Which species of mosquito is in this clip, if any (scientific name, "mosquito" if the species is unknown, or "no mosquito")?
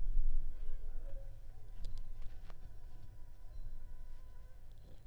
Culex pipiens complex